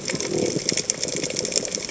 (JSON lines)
{"label": "biophony", "recorder": "HydroMoth"}